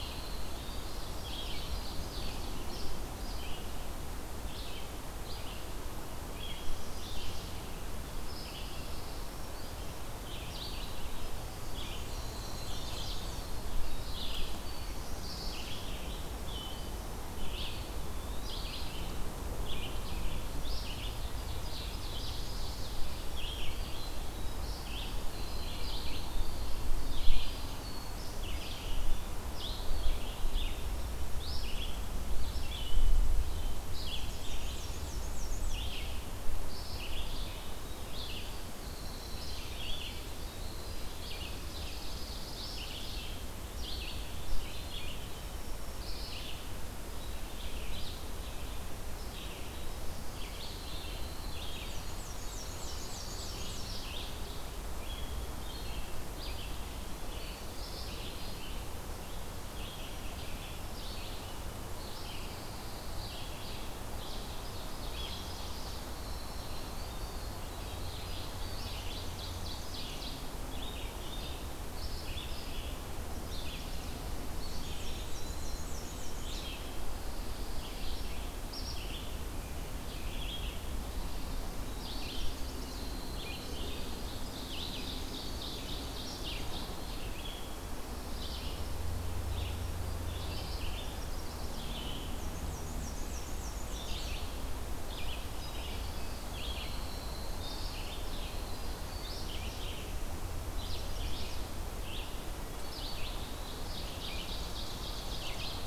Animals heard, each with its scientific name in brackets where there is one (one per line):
Eastern Wood-Pewee (Contopus virens)
Dark-eyed Junco (Junco hyemalis)
Ovenbird (Seiurus aurocapilla)
Black-and-white Warbler (Mniotilta varia)
Chestnut-sided Warbler (Setophaga pensylvanica)
Pine Warbler (Setophaga pinus)
Winter Wren (Troglodytes hiemalis)
Red-eyed Vireo (Vireo olivaceus)